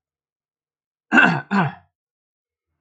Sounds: Throat clearing